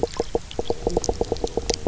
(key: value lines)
label: biophony, knock croak
recorder: SoundTrap 300